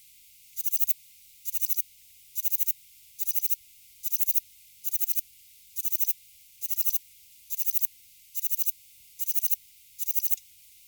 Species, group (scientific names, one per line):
Platycleis albopunctata
Orthoptera